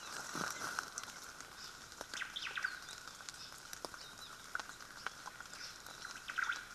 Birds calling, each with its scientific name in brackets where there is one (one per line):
Omao (Myadestes obscurus)